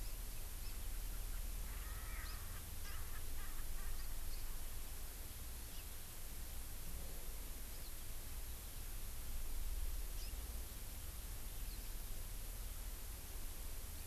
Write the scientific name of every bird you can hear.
Chlorodrepanis virens, Pternistis erckelii